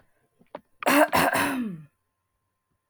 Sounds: Throat clearing